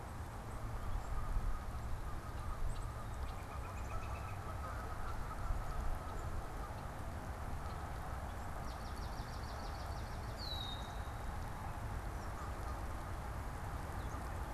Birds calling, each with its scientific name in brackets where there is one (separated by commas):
Black-capped Chickadee (Poecile atricapillus), Canada Goose (Branta canadensis), Swamp Sparrow (Melospiza georgiana), Red-winged Blackbird (Agelaius phoeniceus), Northern Flicker (Colaptes auratus)